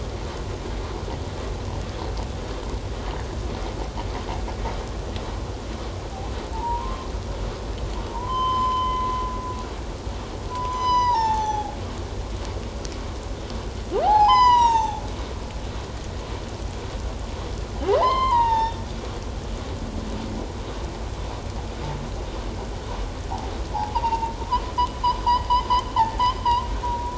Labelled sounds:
6.5	7.1	humpback whale, 0.81 to 1.2 kHz
8.1	9.1	humpback whale, 0.88 to 3.2 kHz
10.5	11.7	humpback whale, 0.78 to 6.5 kHz
14.0	15.0	humpback whale, 0.78 to 8.0 kHz
17.9	18.8	humpback whale, 0.78 to 7.4 kHz
23.7	24.4	humpback whale, 0.78 to 2.9 kHz

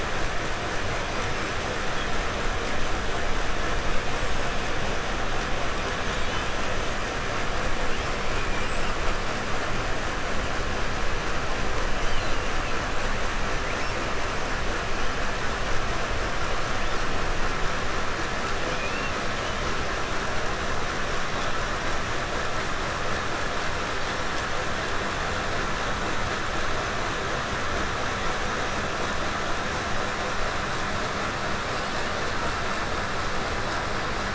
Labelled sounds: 1.0	1.6	killer whale, 4.4 to 5.6 kHz
4.1	4.8	killer whale, 4.6 to 7.9 kHz
16.7	17.1	killer whale, 2.1 to 6.2 kHz
18.6	19.7	killer whale, 2.1 to 3.7 kHz
31.7	32.4	killer whale, 2.0 to 5.5 kHz

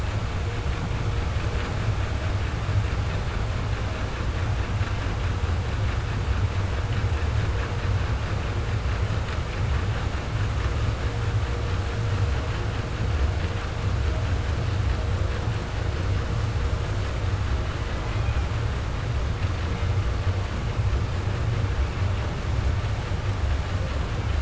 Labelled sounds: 17.6	18.5	killer whale, southern resident, J pod, call S01, 0.10 to 3.0 kHz

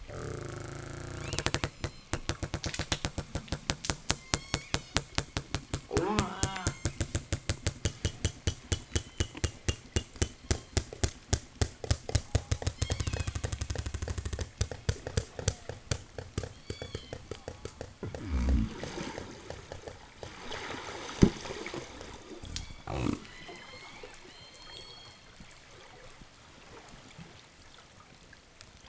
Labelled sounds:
0.8	2.0	killer whale, southern resident, 0 to 8.0 kHz
3.9	5.2	killer whale, southern resident, 0 to 8.0 kHz
5.6	7.1	killer whale, southern resident, 0 to 7.5 kHz
8.6	11.4	killer whale, southern resident, 0 to 7.1 kHz
12.5	13.7	killer whale, southern resident, call S01, 0 to 8.0 kHz
16.3	17.3	killer whale, southern resident, 0 to 8.0 kHz
17.2	17.9	killer whale, southern resident, call S04, 0.27 to 1.7 kHz
18.0	22.2	noise likely from the mooring, 0 to 8.0 kHz
22.3	25.3	killer whale, southern resident, 0 to 8.0 kHz

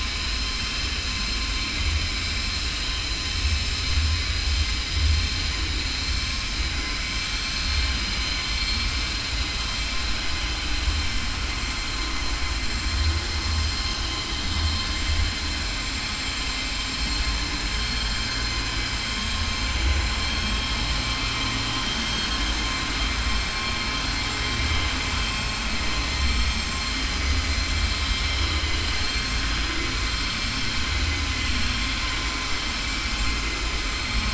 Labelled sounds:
7.1	9.1	vessel noise, 1.1 to 4.7 kHz

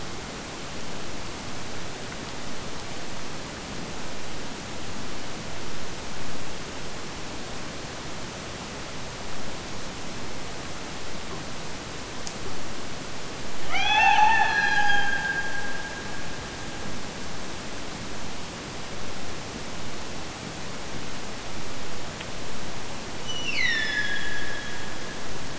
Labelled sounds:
13.6	17.6	killer whale, Bigg's (transient), Gulf of Alaska transient, 0.51 to 6.6 kHz
23.2	25.5	killer whale, Bigg's (transient), Gulf of Alaska transient, 1.6 to 6.2 kHz

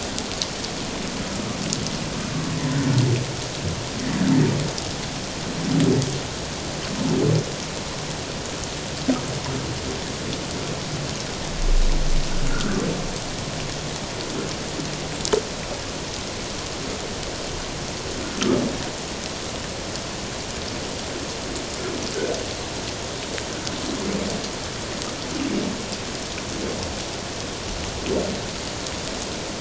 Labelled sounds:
12.5	12.8	humpback whale, 1.2 to 1.7 kHz

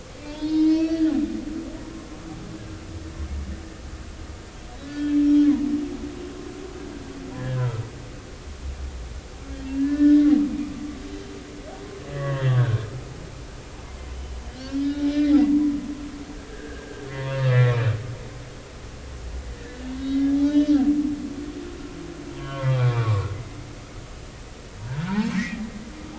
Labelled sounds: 0.2	1.1	humpback whale, 0.83 to 5.6 kHz
4.8	5.1	humpback whale, 1.4 to 1.8 kHz
7.3	7.8	humpback whale, 1.3 to 1.9 kHz
9.8	10.2	humpback whale, 1.4 to 1.9 kHz
12.1	12.8	humpback whale, 0.90 to 3.5 kHz
14.1	15.3	humpback whale, 2.3 to 3.8 kHz
16.5	17.9	humpback whale, 1.5 to 2.5 kHz
20.0	20.8	humpback whale, 2.9 to 6.0 kHz
22.4	23.3	humpback whale, 0.90 to 3.5 kHz
25.0	25.6	humpback whale, 0.80 to 2.3 kHz

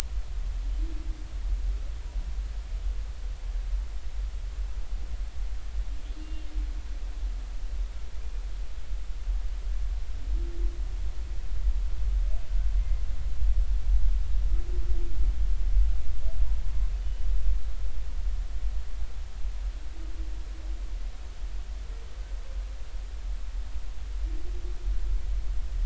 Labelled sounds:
6.2	6.5	humpback whale, 2.7 to 2.8 kHz

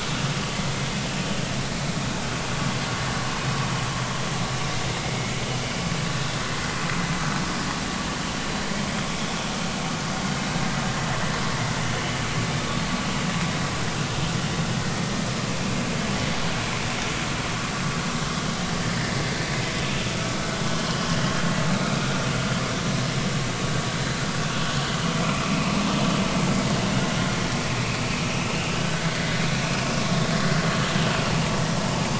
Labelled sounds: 5.1	5.3	vessel noise, 2.1 to 2.2 kHz
20.0	20.3	vessel noise, 1.2 to 1.5 kHz
25.2	25.7	vessel noise, 2.2 to 2.8 kHz
28.7	29.4	vessel noise, 1.5 to 2.1 kHz

